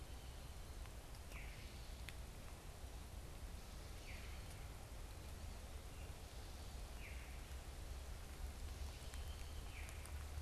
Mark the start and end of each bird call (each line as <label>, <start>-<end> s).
unidentified bird, 1.3-1.7 s
unidentified bird, 3.9-4.4 s
unidentified bird, 6.8-7.5 s
unidentified bird, 9.6-10.1 s